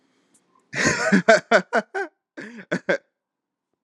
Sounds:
Laughter